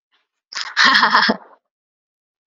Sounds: Laughter